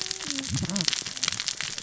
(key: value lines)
label: biophony, cascading saw
recorder: SoundTrap 600 or HydroMoth